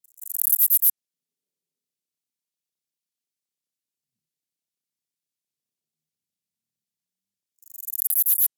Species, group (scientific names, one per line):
Callicrania ramburii
Orthoptera